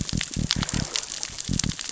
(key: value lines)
label: biophony
recorder: SoundTrap 600 or HydroMoth